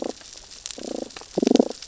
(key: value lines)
label: biophony, damselfish
recorder: SoundTrap 600 or HydroMoth